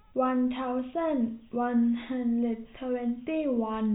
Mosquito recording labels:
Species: no mosquito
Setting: cup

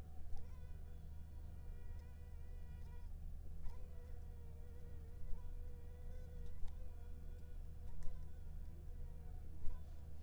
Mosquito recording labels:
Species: Anopheles funestus s.s.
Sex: female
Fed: unfed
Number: one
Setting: cup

